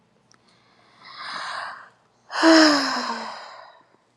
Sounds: Sigh